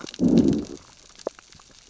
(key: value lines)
label: biophony, growl
recorder: SoundTrap 600 or HydroMoth